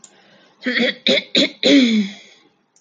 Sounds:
Throat clearing